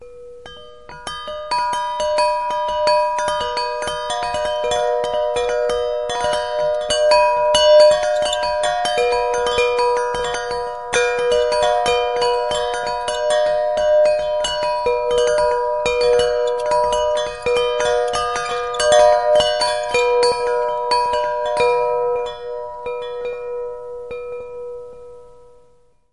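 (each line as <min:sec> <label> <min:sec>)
0:00.0 Loud metallic wind chimes. 0:26.1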